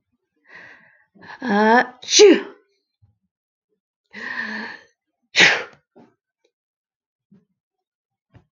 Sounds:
Sneeze